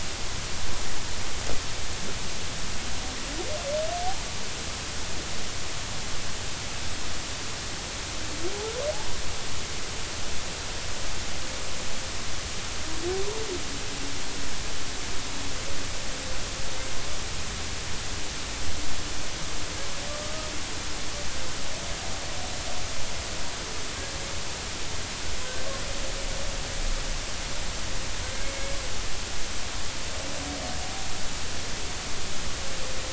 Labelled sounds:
20.2	20.5	humpback whale, 1.2 to 1.3 kHz
28.4	28.7	humpback whale, 2.1 to 2.2 kHz

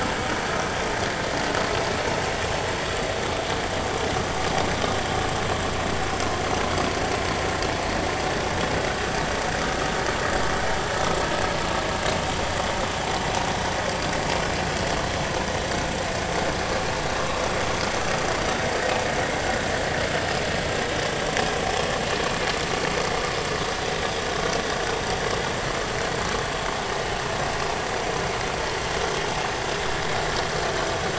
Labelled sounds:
9.6	9.9	vessel noise, 1.2 to 1.4 kHz

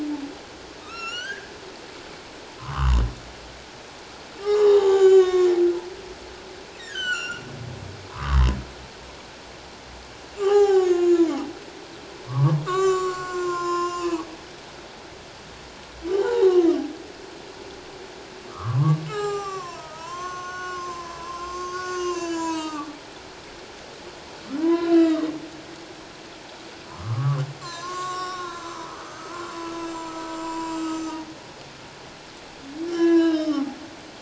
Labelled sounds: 0.8	1.5	humpback whale, 1.2 to 7.4 kHz
2.6	3.0	humpback whale, 0.91 to 1.6 kHz
4.4	5.6	humpback whale, 0.78 to 7.2 kHz
6.8	7.4	humpback whale, 1.2 to 7.5 kHz
8.1	8.4	humpback whale, 0.94 to 1.4 kHz
10.3	11.2	humpback whale, 0.78 to 7.4 kHz
12.3	14.3	humpback whale, 0.81 to 7.4 kHz
16.0	16.7	humpback whale, 0.78 to 1.6 kHz
18.5	23.0	humpback whale, 0.78 to 8.0 kHz
24.6	25.3	humpback whale, 0.94 to 3.9 kHz
26.9	29.5	humpback whale, 0.91 to 7.4 kHz
29.9	31.1	humpback whale, 0.88 to 7.4 kHz
32.9	33.7	humpback whale, 0.91 to 5.4 kHz

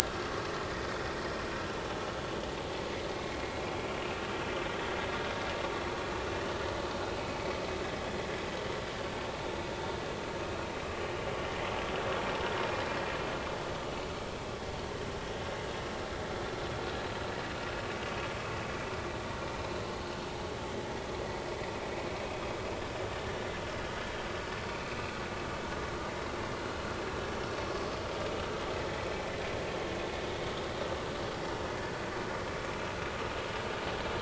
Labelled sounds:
3.2	3.4	vessel noise, 2.1 to 2.2 kHz
7.2	7.4	vessel noise, 2.2 to 2.3 kHz
8.0	8.3	vessel noise, 3.2 to 3.5 kHz
19.5	20.2	vessel noise, 4.0 to 4.3 kHz

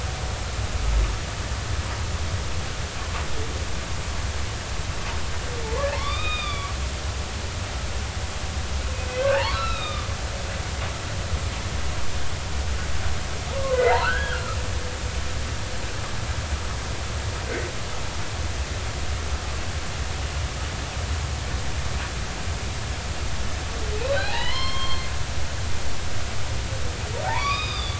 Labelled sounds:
5.9	6.7	humpback whale, 0.86 to 4.9 kHz
9.1	10.1	humpback whale, 0.83 to 4.1 kHz
13.5	14.6	humpback whale, 0.96 to 1.7 kHz
24.0	25.1	humpback whale, 0.80 to 5.4 kHz
27.2	27.9	humpback whale, 0.80 to 5.0 kHz

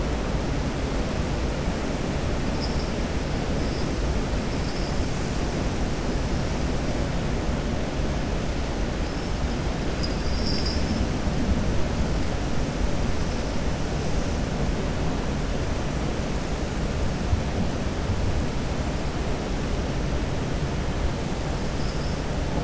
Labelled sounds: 9.9	11.0	vessel noise, 4.7 to 7.2 kHz

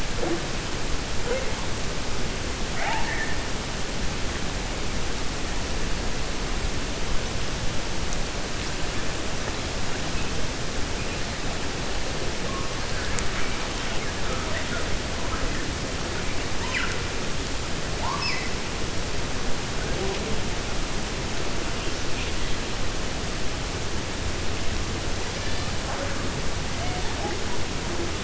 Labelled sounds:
2.6	3.4	killer whale, 0.66 to 2.9 kHz

